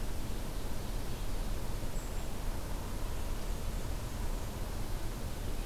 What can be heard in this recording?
forest ambience